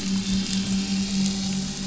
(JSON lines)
{"label": "anthrophony, boat engine", "recorder": "SoundTrap 500"}